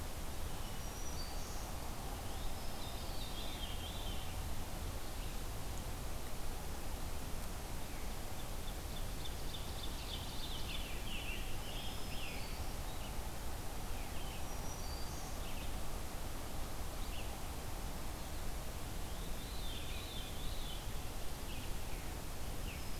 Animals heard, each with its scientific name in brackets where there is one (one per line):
Scarlet Tanager (Piranga olivacea)
Black-throated Green Warbler (Setophaga virens)
Veery (Catharus fuscescens)
Ovenbird (Seiurus aurocapilla)
Red-eyed Vireo (Vireo olivaceus)